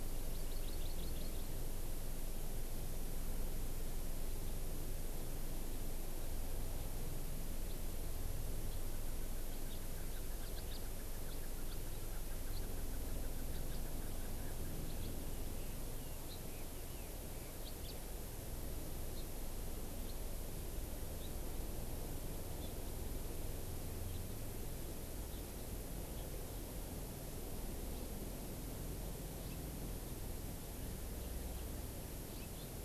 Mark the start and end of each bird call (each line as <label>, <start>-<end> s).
Hawaii Amakihi (Chlorodrepanis virens), 0.0-1.5 s
House Finch (Haemorhous mexicanus), 7.6-7.8 s
House Finch (Haemorhous mexicanus), 8.7-8.8 s
House Finch (Haemorhous mexicanus), 10.4-10.8 s
House Finch (Haemorhous mexicanus), 11.3-11.4 s
House Finch (Haemorhous mexicanus), 11.7-11.8 s
House Finch (Haemorhous mexicanus), 12.5-12.6 s
House Finch (Haemorhous mexicanus), 13.5-13.8 s
House Finch (Haemorhous mexicanus), 14.9-15.1 s
Red-billed Leiothrix (Leiothrix lutea), 15.2-17.6 s
House Finch (Haemorhous mexicanus), 17.6-17.9 s